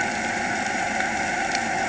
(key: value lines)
label: anthrophony, boat engine
recorder: HydroMoth